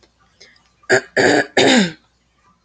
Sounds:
Throat clearing